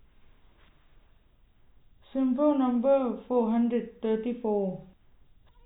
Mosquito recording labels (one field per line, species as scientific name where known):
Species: no mosquito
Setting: cup